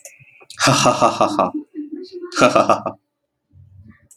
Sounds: Laughter